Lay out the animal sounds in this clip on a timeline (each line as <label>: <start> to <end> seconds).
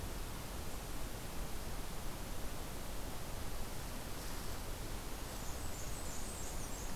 Blackburnian Warbler (Setophaga fusca): 5.2 to 7.0 seconds